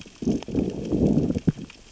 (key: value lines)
label: biophony, growl
recorder: SoundTrap 600 or HydroMoth